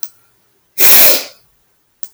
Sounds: Sniff